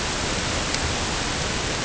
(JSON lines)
{"label": "ambient", "recorder": "HydroMoth"}